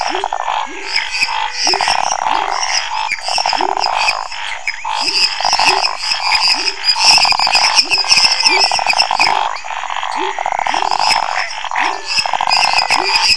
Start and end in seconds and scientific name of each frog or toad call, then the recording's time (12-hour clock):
0.0	13.2	Leptodactylus labyrinthicus
0.0	13.3	Dendropsophus minutus
0.0	13.3	Scinax fuscovarius
0.2	2.2	Physalaemus albonotatus
7.6	9.2	Physalaemus albonotatus
11.8	13.3	Physalaemus albonotatus
10:15pm